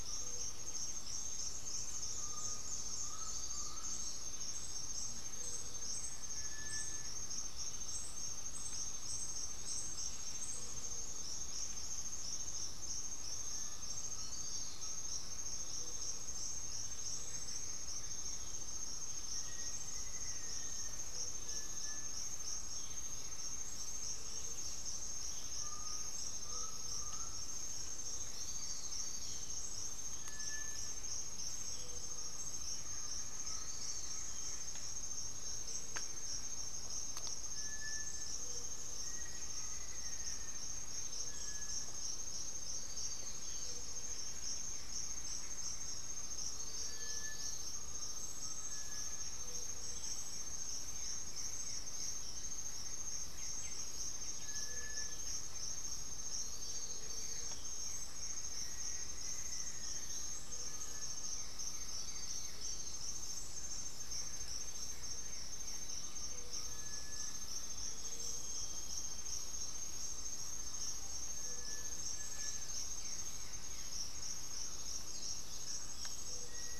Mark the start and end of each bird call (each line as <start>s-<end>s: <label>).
0.0s-76.8s: Gray-fronted Dove (Leptotila rufaxilla)
2.1s-4.2s: Undulated Tinamou (Crypturellus undulatus)
6.2s-7.2s: Cinereous Tinamou (Crypturellus cinereus)
16.4s-18.7s: Blue-gray Saltator (Saltator coerulescens)
19.1s-21.1s: Black-faced Antthrush (Formicarius analis)
21.3s-22.3s: Cinereous Tinamou (Crypturellus cinereus)
25.5s-27.9s: Undulated Tinamou (Crypturellus undulatus)
27.9s-29.4s: Blue-gray Saltator (Saltator coerulescens)
30.0s-31.0s: Cinereous Tinamou (Crypturellus cinereus)
32.7s-34.4s: Blue-gray Saltator (Saltator coerulescens)
37.5s-42.0s: Cinereous Tinamou (Crypturellus cinereus)
38.8s-40.8s: Black-faced Antthrush (Formicarius analis)
38.9s-47.4s: unidentified bird
45.9s-49.7s: Undulated Tinamou (Crypturellus undulatus)
46.7s-49.4s: Cinereous Tinamou (Crypturellus cinereus)
50.8s-65.9s: Blue-gray Saltator (Saltator coerulescens)
50.9s-62.8s: Buff-breasted Wren (Cantorchilus leucotis)
54.3s-55.3s: Cinereous Tinamou (Crypturellus cinereus)
58.3s-60.3s: Black-faced Antthrush (Formicarius analis)
59.8s-62.1s: Undulated Tinamou (Crypturellus undulatus)
66.5s-72.8s: Cinereous Tinamou (Crypturellus cinereus)
67.4s-69.4s: Chestnut-winged Foliage-gleaner (Dendroma erythroptera)
71.9s-74.0s: Blue-gray Saltator (Saltator coerulescens)
74.5s-76.2s: unidentified bird